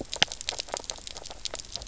{"label": "biophony, knock croak", "recorder": "SoundTrap 300"}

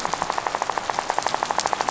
{"label": "biophony, rattle", "recorder": "SoundTrap 500"}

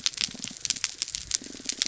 {"label": "biophony", "recorder": "SoundTrap 300"}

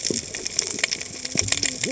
{"label": "biophony, cascading saw", "recorder": "HydroMoth"}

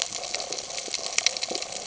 {"label": "ambient", "recorder": "HydroMoth"}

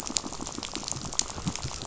{"label": "biophony, rattle", "recorder": "SoundTrap 500"}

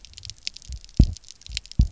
{"label": "biophony, double pulse", "recorder": "SoundTrap 300"}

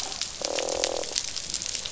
{"label": "biophony, croak", "recorder": "SoundTrap 500"}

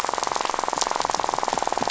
{"label": "biophony, rattle", "recorder": "SoundTrap 500"}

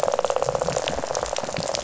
{"label": "biophony, rattle", "recorder": "SoundTrap 500"}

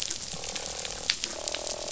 {"label": "biophony, croak", "recorder": "SoundTrap 500"}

